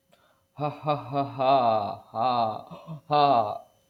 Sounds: Laughter